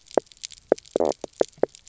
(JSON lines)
{"label": "biophony, knock croak", "recorder": "SoundTrap 300"}